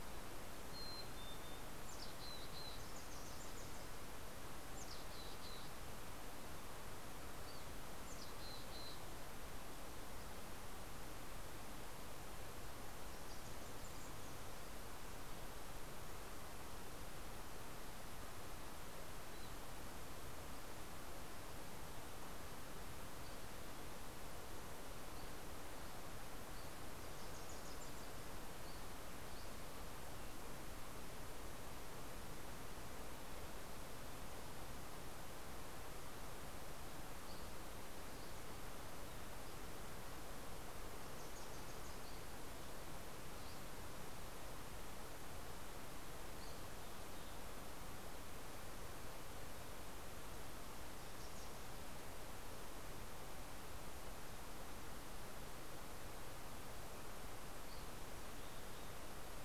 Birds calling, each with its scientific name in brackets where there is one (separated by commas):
Mountain Chickadee (Poecile gambeli), Wilson's Warbler (Cardellina pusilla), Dusky Flycatcher (Empidonax oberholseri)